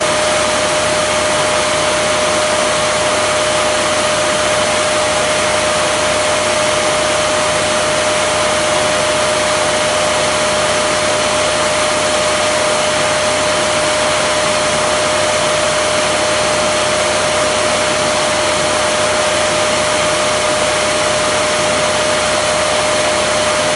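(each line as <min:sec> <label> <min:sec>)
0:00.0 A loud vacuum cleaner running indoors. 0:23.8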